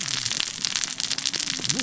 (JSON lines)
{"label": "biophony, cascading saw", "recorder": "SoundTrap 600 or HydroMoth"}